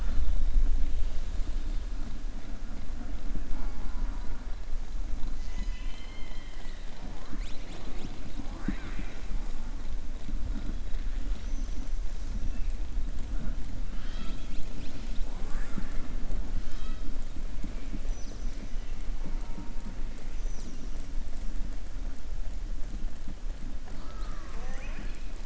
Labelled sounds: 13.9	15.3	killer whale, southern resident, 1.3 to 5.8 kHz

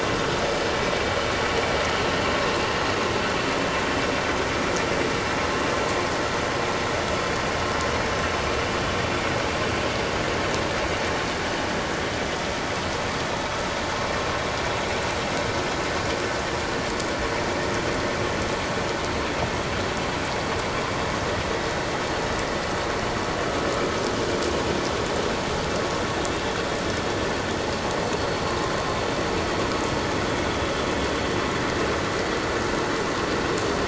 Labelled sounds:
28.5	28.7	vessel noise, 1.0 to 1.1 kHz

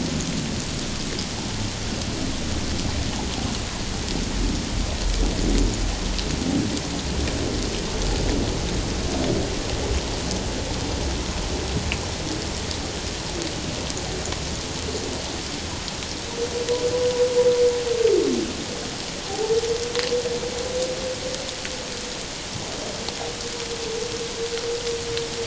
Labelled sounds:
19.2	19.6	humpback whale, 0.78 to 0.94 kHz

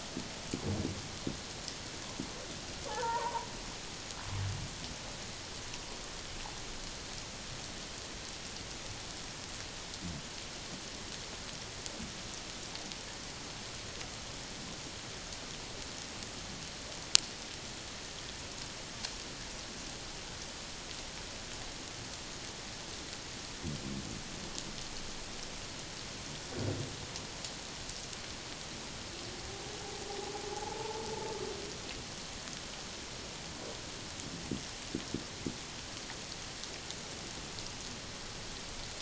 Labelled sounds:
2.9	3.5	humpback whale, 0.81 to 1.9 kHz
30.5	31.1	humpback whale, 0.78 to 0.97 kHz

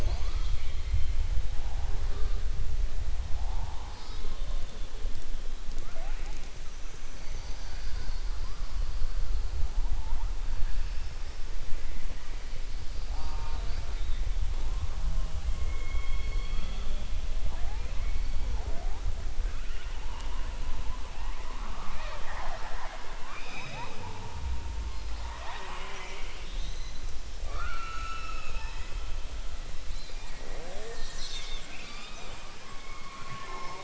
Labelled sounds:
27.4	28.9	killer whale, southern resident, 0.42 to 6.6 kHz

